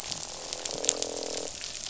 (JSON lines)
{"label": "biophony, croak", "recorder": "SoundTrap 500"}